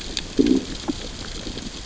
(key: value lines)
label: biophony, growl
recorder: SoundTrap 600 or HydroMoth